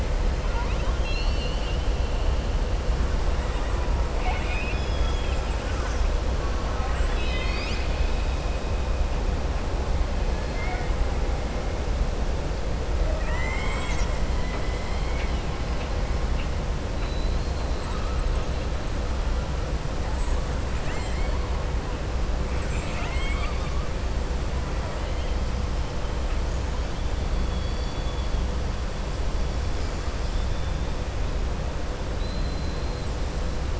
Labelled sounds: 0.4	1.9	killer whale, southern resident, 0.96 to 5.7 kHz
6.4	8.0	killer whale, southern resident, 1.1 to 7.0 kHz
10.5	10.9	killer whale, southern resident, 0.71 to 2.3 kHz
13.0	15.5	killer whale, southern resident, 0.66 to 7.9 kHz
16.9	18.0	killer whale, southern resident, 3.8 to 4.6 kHz
20.7	21.4	killer whale, southern resident, 1.0 to 5.0 kHz
22.5	23.7	killer whale, southern resident, 0.75 to 4.7 kHz
27.4	28.3	killer whale, southern resident, 3.2 to 4.6 kHz
30.1	30.7	killer whale, southern resident, 2.9 to 5.6 kHz

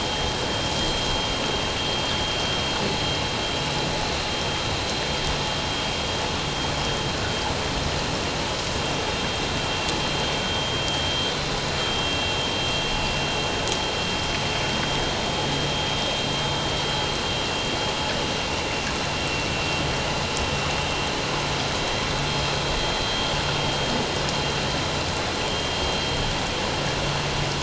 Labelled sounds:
12.0	12.3	vessel noise, 2.7 to 2.8 kHz

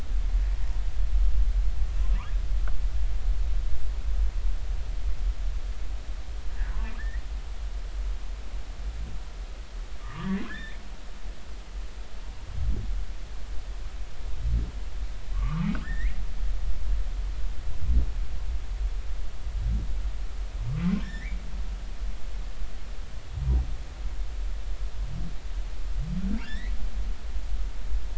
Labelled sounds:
7.0	7.2	humpback whale, 1.6 to 2.0 kHz
10.0	10.8	humpback whale, 0.93 to 3.8 kHz
15.3	16.2	humpback whale, 1.0 to 2.4 kHz
21.0	21.4	humpback whale, 1.5 to 2.4 kHz
26.4	26.7	humpback whale, 1.3 to 4.1 kHz

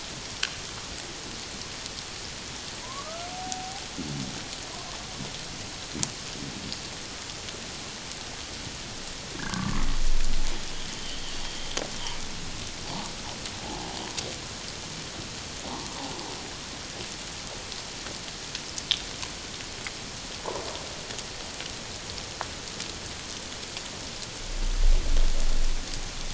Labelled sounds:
2.8	3.8	humpback whale, 0.78 to 1.4 kHz
9.4	9.8	humpback whale, 1.0 to 1.2 kHz
10.8	11.2	humpback whale, 2.9 to 3.2 kHz
13.6	13.9	humpback whale, 0.78 to 0.91 kHz

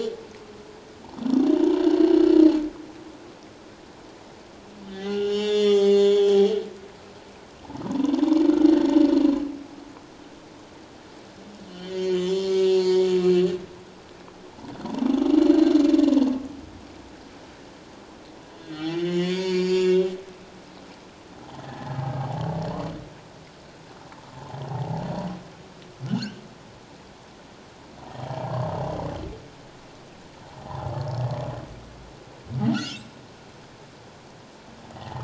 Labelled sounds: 2.0	2.3	humpback whale, 2.8 to 3.1 kHz
4.8	7.1	humpback whale, 0.78 to 7.2 kHz
7.9	8.1	humpback whale, 0.88 to 1.1 kHz
11.7	13.3	humpback whale, 0.88 to 4.9 kHz
18.6	20.0	humpback whale, 0.78 to 7.2 kHz
21.6	22.2	humpback whale, 0.78 to 1.8 kHz
24.7	25.0	humpback whale, 0.78 to 0.97 kHz
26.0	26.4	humpback whale, 1.2 to 3.2 kHz
28.1	28.4	humpback whale, 3.0 to 3.3 kHz
30.6	30.9	humpback whale, 0.78 to 1.1 kHz
32.7	33.1	humpback whale, 1.3 to 3.5 kHz
34.9	35.2	humpback whale, 0.78 to 2.0 kHz

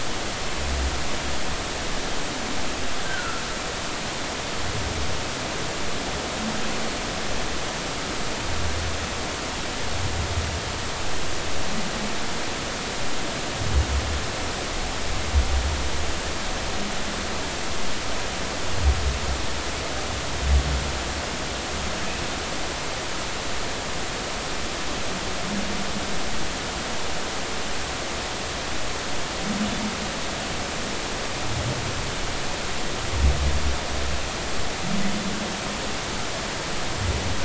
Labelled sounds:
3.0	3.4	humpback whale, 1.2 to 1.6 kHz

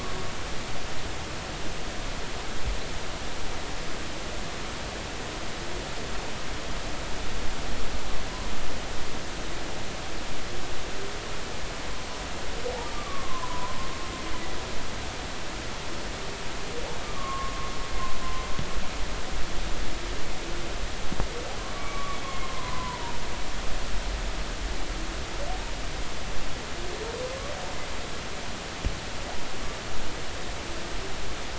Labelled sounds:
13.0	14.6	humpback whale, 0.93 to 2.1 kHz
17.0	18.5	humpback whale, 0.99 to 1.2 kHz
21.8	23.1	humpback whale, 0.90 to 2.3 kHz
27.3	27.5	humpback whale, 0.99 to 1.2 kHz

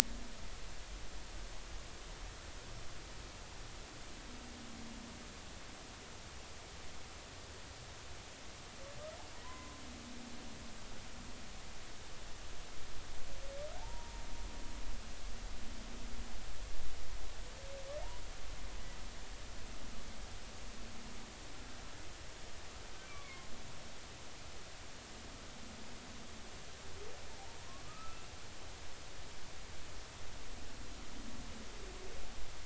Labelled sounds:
9.4	9.8	humpback whale, 0.93 to 2.1 kHz
13.8	14.2	humpback whale, 0.80 to 1.0 kHz
23.1	23.5	humpback whale, 1.0 to 2.4 kHz
27.8	28.2	humpback whale, 1.1 to 1.4 kHz

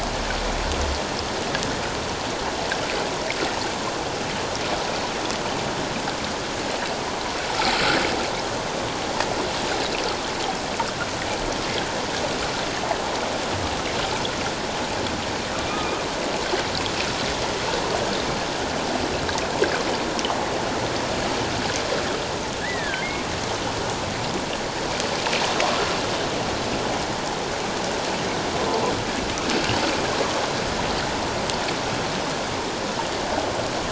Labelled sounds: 22.6	23.0	humpback whale, 1.5 to 2.1 kHz
29.5	29.8	humpback whale, 2.6 to 3.1 kHz

